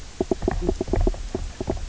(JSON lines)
{"label": "biophony, knock croak", "recorder": "SoundTrap 300"}